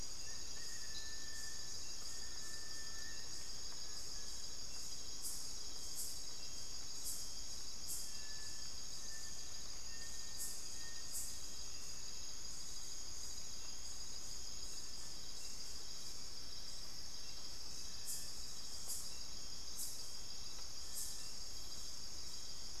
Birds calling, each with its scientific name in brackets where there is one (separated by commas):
Little Tinamou (Crypturellus soui), Western Striolated-Puffbird (Nystalus obamai)